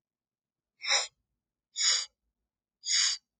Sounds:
Sniff